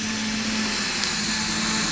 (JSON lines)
{"label": "anthrophony, boat engine", "recorder": "SoundTrap 500"}